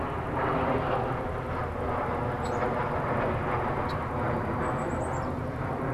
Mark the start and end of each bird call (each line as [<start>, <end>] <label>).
[2.27, 2.57] Red-winged Blackbird (Agelaius phoeniceus)
[2.37, 3.07] Black-capped Chickadee (Poecile atricapillus)
[3.77, 4.07] Red-winged Blackbird (Agelaius phoeniceus)
[4.47, 5.87] Black-capped Chickadee (Poecile atricapillus)